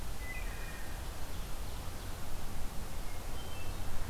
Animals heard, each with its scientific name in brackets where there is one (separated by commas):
Wood Thrush (Hylocichla mustelina), Hermit Thrush (Catharus guttatus), Ovenbird (Seiurus aurocapilla)